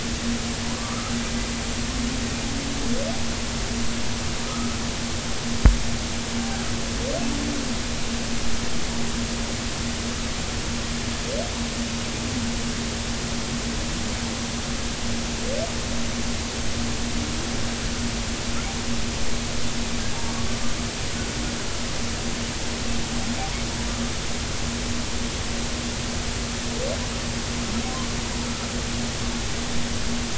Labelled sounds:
0.8	1.1	humpback whale, 1.1 to 1.4 kHz

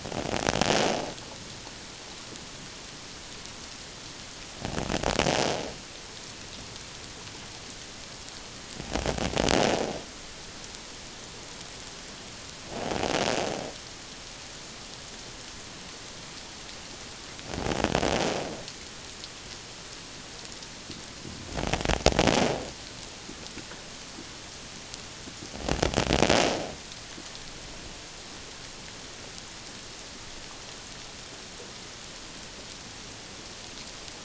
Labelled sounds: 12.7	13.0	invertebrate grinding on or near the hydrophone, 0.78 to 0.88 kHz

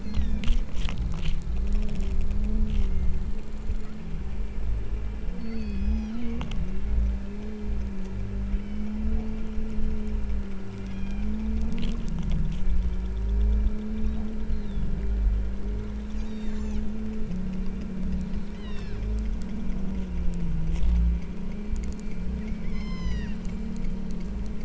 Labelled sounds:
0.0	0.4	killer whale, southern Alaska resident, 1.4 to 7.6 kHz
2.6	3.4	killer whale, southern Alaska resident, 1.8 to 6.7 kHz
5.4	6.2	killer whale, southern Alaska resident, 2.0 to 6.1 kHz
8.5	9.0	killer whale, southern Alaska resident, 1.9 to 6.1 kHz
10.9	11.4	killer whale, southern Alaska resident, 1.4 to 6.7 kHz
14.5	15.0	killer whale, southern Alaska resident, 3.2 to 4.4 kHz
16.0	16.9	killer whale, southern Alaska resident, 2.2 to 8.0 kHz
18.6	19.1	killer whale, southern Alaska resident, 1.3 to 6.5 kHz
22.6	23.4	killer whale, southern Alaska resident, 0.78 to 8.0 kHz

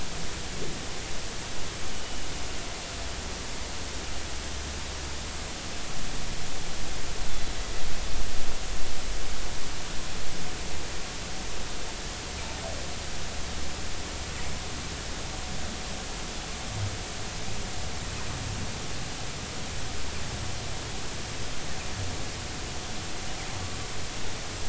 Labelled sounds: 1.9	2.3	humpback whale, 2.8 to 3.0 kHz

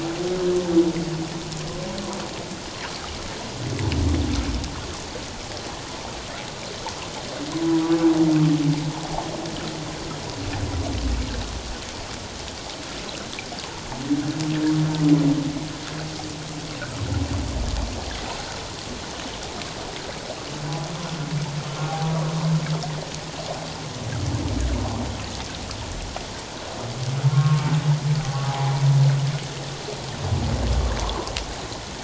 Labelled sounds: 27.3	28.7	humpback whale, 0.78 to 1.4 kHz
31.0	31.3	humpback whale, 0.91 to 1.2 kHz

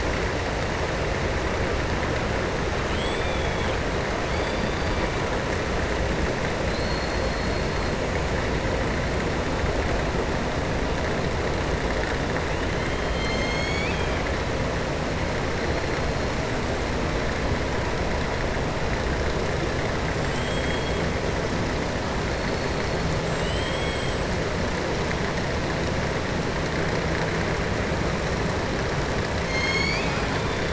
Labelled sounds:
2.8	3.8	killer whale, southern resident, 2.2 to 4.5 kHz
6.6	7.6	killer whale, southern resident, 4.1 to 4.4 kHz
20.1	21.0	killer whale, southern resident, 2.7 to 7.9 kHz
23.3	24.1	killer whale, southern resident, 2.2 to 4.2 kHz
29.4	30.7	killer whale, southern resident, 1.4 to 7.5 kHz

